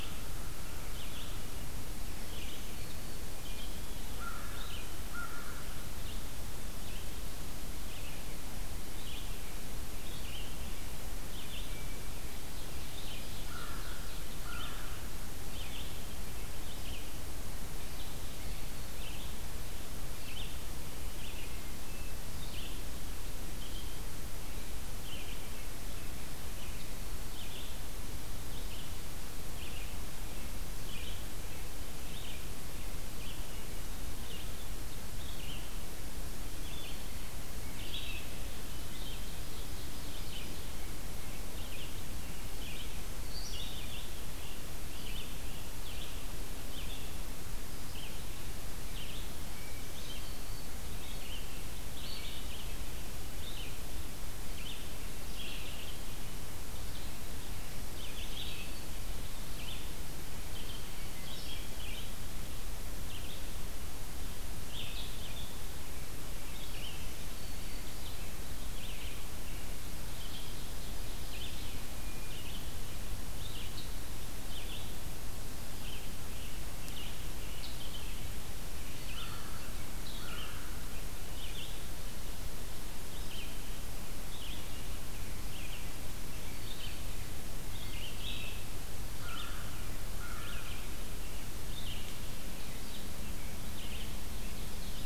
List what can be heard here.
Red-eyed Vireo, Black-throated Green Warbler, American Crow, Ovenbird